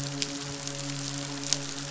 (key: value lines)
label: biophony, midshipman
recorder: SoundTrap 500